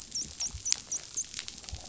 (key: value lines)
label: biophony, dolphin
recorder: SoundTrap 500